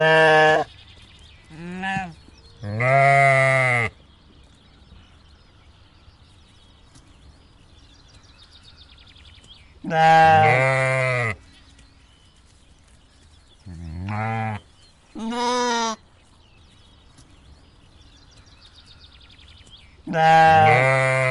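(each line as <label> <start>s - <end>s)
A sheep bleats loudly in the field. 0.0s - 0.7s
Multiple birds are singing. 0.0s - 21.3s
Sheep are walking on the grass with indistinct background sounds. 0.7s - 21.3s
Two sheep bleat loudly in a field. 1.5s - 3.9s
Several sheep are bleating loudly at each other. 9.8s - 11.4s
Sheep bleat at each other in different pitches. 13.7s - 16.0s
Sheep bleat at each other in different pitches. 20.0s - 21.3s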